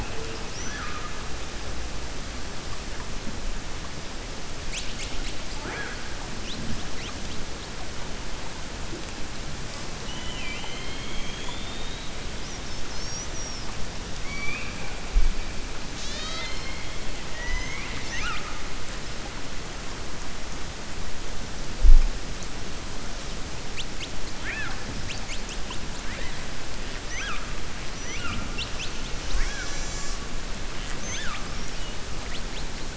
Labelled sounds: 17.2	18.6	killer whale, 0.64 to 6.7 kHz

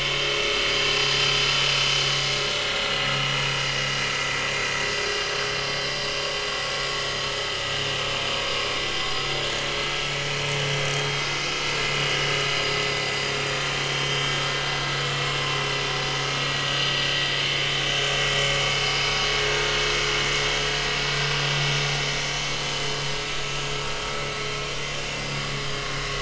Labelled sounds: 12.0	12.3	vessel noise, 2.8 to 2.9 kHz
13.9	14.3	vessel noise, 2.9 to 3.2 kHz
19.0	19.4	vessel noise, 6.2 to 6.4 kHz

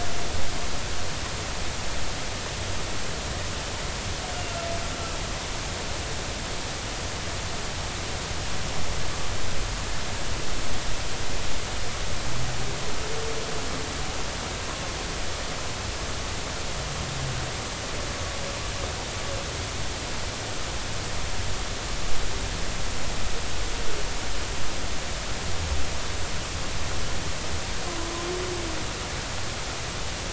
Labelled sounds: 27.9	28.1	humpback whale, 0.96 to 1.1 kHz

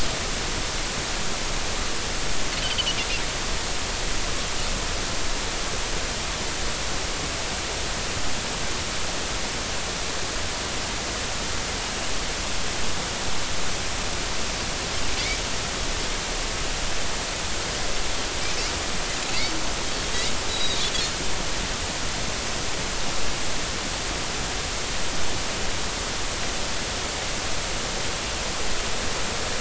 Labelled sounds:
20.5	20.8	Pacific white-sided dolphin, 3.6 to 4.0 kHz

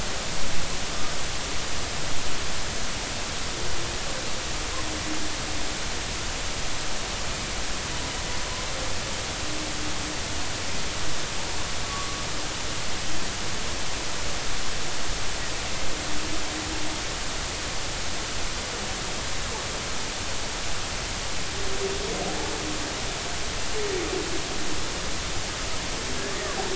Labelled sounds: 11.8	12.2	humpback whale, 1.1 to 1.2 kHz

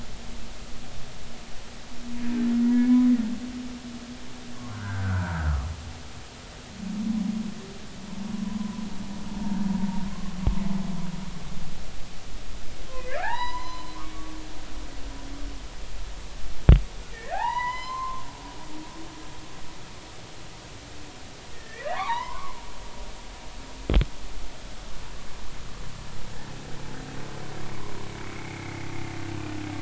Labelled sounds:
2.7	3.1	humpback whale, 2.1 to 2.3 kHz
4.5	5.4	humpback whale, 0.86 to 1.7 kHz
9.4	10.4	humpback whale, 0.93 to 1.2 kHz
13.1	14.4	humpback whale, 0.80 to 6.0 kHz
17.1	18.2	humpback whale, 0.80 to 7.2 kHz
21.5	22.6	humpback whale, 0.80 to 3.2 kHz
28.4	28.9	humpback whale, 2.0 to 2.5 kHz

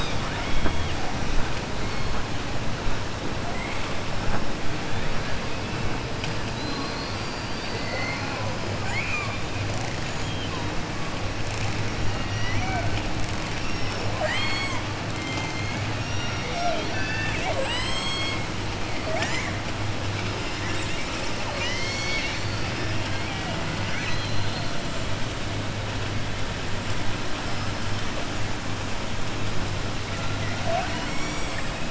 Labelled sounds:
3.4	3.8	killer whale, southern resident, 2.0 to 3.1 kHz
8.7	9.5	killer whale, southern resident, 0.80 to 4.5 kHz
13.6	14.8	killer whale, southern resident, 0.63 to 8.0 kHz
20.5	21.0	killer whale, southern resident, 1.1 to 4.2 kHz
21.4	24.7	killer whale, southern resident, 0.69 to 7.6 kHz

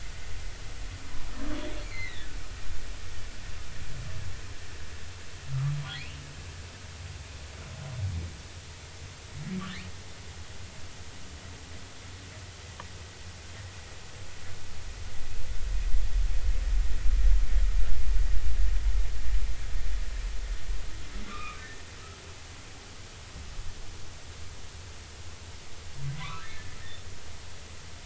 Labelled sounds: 1.8	2.3	humpback whale, 1.7 to 4.0 kHz
5.9	6.3	humpback whale, 1.9 to 3.1 kHz
21.3	21.6	humpback whale, 1.1 to 2.6 kHz
26.2	26.8	humpback whale, 0.96 to 1.9 kHz

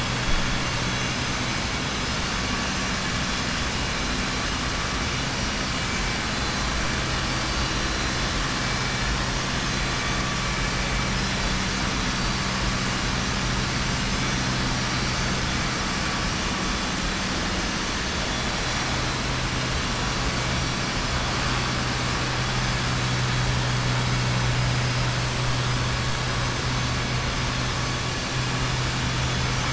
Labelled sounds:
29.2	29.7	vessel noise, 5.6 to 7.0 kHz

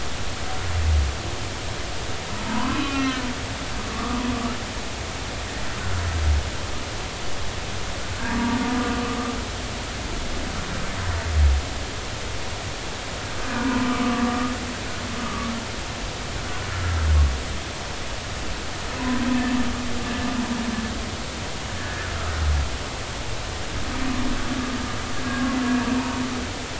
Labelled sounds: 2.4	3.2	humpback whale, 0.86 to 4.1 kHz
3.8	4.2	humpback whale, 1.1 to 1.3 kHz
8.3	8.6	humpback whale, 1.1 to 1.2 kHz
13.5	15.5	humpback whale, 0.90 to 1.7 kHz
16.7	17.1	humpback whale, 1.3 to 1.5 kHz
21.8	22.1	humpback whale, 1.6 to 1.8 kHz

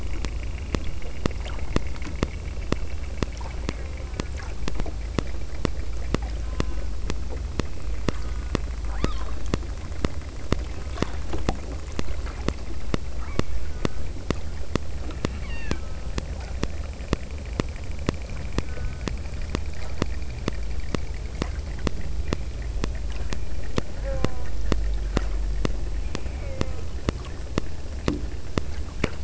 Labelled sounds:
3.7	4.5	killer whale, southern Alaska resident, 0.55 to 2.4 kHz
6.5	7.0	killer whale, southern Alaska resident, 0.87 to 3.7 kHz
8.1	9.4	killer whale, southern Alaska resident, 0.57 to 5.3 kHz
13.2	14.3	killer whale, southern Alaska resident, 0.66 to 3.6 kHz
15.4	16.3	killer whale, southern Alaska resident, 0.50 to 5.8 kHz
18.7	19.2	killer whale, southern Alaska resident, 1.0 to 1.9 kHz
23.9	24.8	killer whale, southern Alaska resident, 0.46 to 2.5 kHz
26.3	27.0	killer whale, southern Alaska resident, 0.39 to 2.9 kHz

